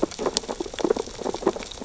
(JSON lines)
{"label": "biophony, sea urchins (Echinidae)", "recorder": "SoundTrap 600 or HydroMoth"}